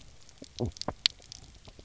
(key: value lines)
label: biophony
recorder: SoundTrap 300